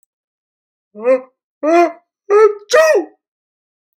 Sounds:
Sneeze